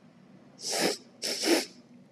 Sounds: Sniff